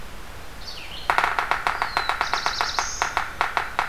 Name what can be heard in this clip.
Red-eyed Vireo, Yellow-bellied Sapsucker, Black-throated Blue Warbler